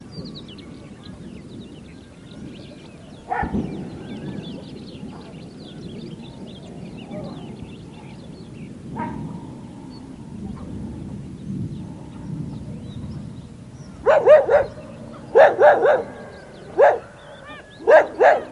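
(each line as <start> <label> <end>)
0.0 Birds are chirping and several people are talking outdoors. 18.5
3.3 A dog barks loudly while birds chirp in the distance. 3.8
8.7 A dog barks and thunder rumbles. 10.0
14.1 A dog barks loudly. 14.7
15.3 A dog barks loudly with periodic gaps. 16.1
16.8 A dog is barking. 17.0
17.8 A dog barks loudly. 18.5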